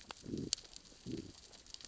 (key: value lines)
label: biophony, growl
recorder: SoundTrap 600 or HydroMoth